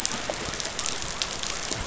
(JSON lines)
{"label": "biophony", "recorder": "SoundTrap 500"}